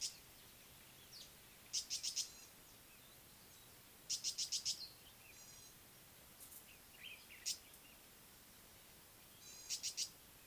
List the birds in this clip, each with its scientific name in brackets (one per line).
Gray-backed Camaroptera (Camaroptera brevicaudata)
Tawny-flanked Prinia (Prinia subflava)
Common Bulbul (Pycnonotus barbatus)